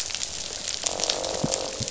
{"label": "biophony, croak", "recorder": "SoundTrap 500"}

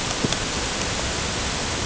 {"label": "ambient", "recorder": "HydroMoth"}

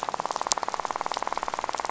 {"label": "biophony, rattle", "recorder": "SoundTrap 500"}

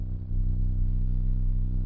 {"label": "anthrophony, boat engine", "recorder": "SoundTrap 300"}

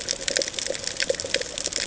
{"label": "ambient", "recorder": "HydroMoth"}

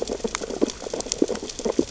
{"label": "biophony, sea urchins (Echinidae)", "recorder": "SoundTrap 600 or HydroMoth"}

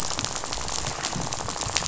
{"label": "biophony, rattle", "recorder": "SoundTrap 500"}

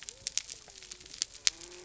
{"label": "biophony", "recorder": "SoundTrap 300"}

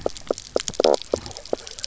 {"label": "biophony, knock croak", "recorder": "SoundTrap 300"}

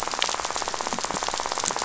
{"label": "biophony, rattle", "recorder": "SoundTrap 500"}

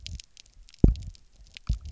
{"label": "biophony, double pulse", "recorder": "SoundTrap 300"}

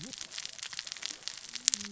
{"label": "biophony, cascading saw", "recorder": "SoundTrap 600 or HydroMoth"}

